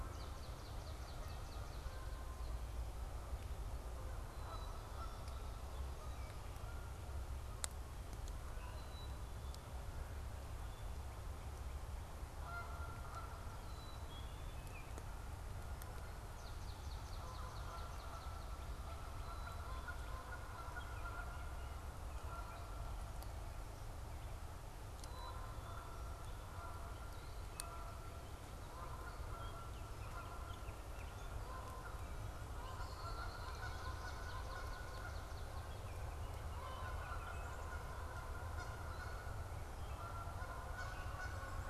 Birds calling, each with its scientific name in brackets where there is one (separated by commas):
Northern Cardinal (Cardinalis cardinalis), Canada Goose (Branta canadensis), Swamp Sparrow (Melospiza georgiana), Black-capped Chickadee (Poecile atricapillus), Baltimore Oriole (Icterus galbula), Red-winged Blackbird (Agelaius phoeniceus)